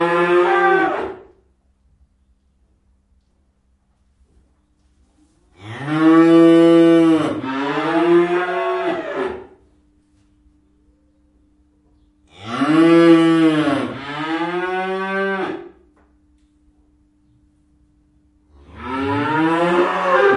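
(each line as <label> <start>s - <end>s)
Cows moo. 0.0s - 1.4s
Cows moo. 5.5s - 9.6s
Cows moo. 12.2s - 15.8s
Cows moo. 18.6s - 20.4s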